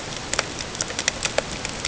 {"label": "ambient", "recorder": "HydroMoth"}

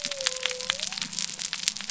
{"label": "biophony", "recorder": "SoundTrap 300"}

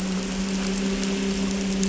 {"label": "anthrophony, boat engine", "recorder": "SoundTrap 300"}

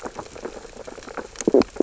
{"label": "biophony, stridulation", "recorder": "SoundTrap 600 or HydroMoth"}
{"label": "biophony, sea urchins (Echinidae)", "recorder": "SoundTrap 600 or HydroMoth"}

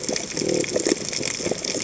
{"label": "biophony", "recorder": "HydroMoth"}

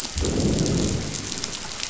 {"label": "biophony, growl", "recorder": "SoundTrap 500"}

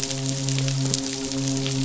{"label": "biophony, midshipman", "recorder": "SoundTrap 500"}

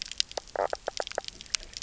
{"label": "biophony, knock croak", "recorder": "SoundTrap 300"}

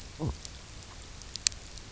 {"label": "biophony, knock croak", "recorder": "SoundTrap 300"}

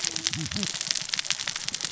{"label": "biophony, cascading saw", "recorder": "SoundTrap 600 or HydroMoth"}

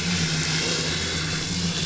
{"label": "anthrophony, boat engine", "recorder": "SoundTrap 500"}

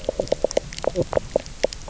{"label": "biophony, knock croak", "recorder": "SoundTrap 300"}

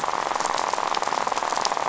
{"label": "biophony, rattle", "recorder": "SoundTrap 500"}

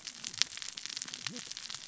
{"label": "biophony, cascading saw", "recorder": "SoundTrap 600 or HydroMoth"}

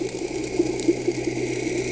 {"label": "anthrophony, boat engine", "recorder": "HydroMoth"}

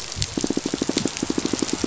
{"label": "biophony, pulse", "recorder": "SoundTrap 500"}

